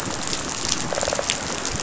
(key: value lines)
label: biophony, rattle response
recorder: SoundTrap 500